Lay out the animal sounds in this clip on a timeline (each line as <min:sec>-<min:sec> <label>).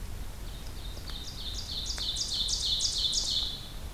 0:00.2-0:03.8 Ovenbird (Seiurus aurocapilla)